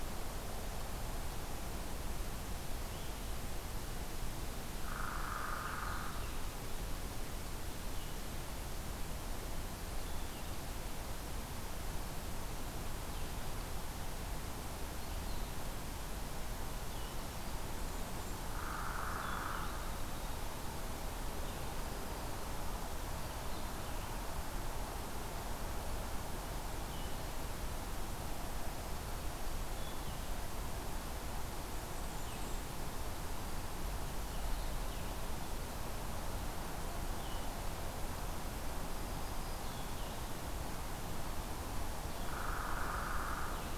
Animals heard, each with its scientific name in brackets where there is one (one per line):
Blue-headed Vireo (Vireo solitarius)
Hairy Woodpecker (Dryobates villosus)
Blackburnian Warbler (Setophaga fusca)
Black-throated Green Warbler (Setophaga virens)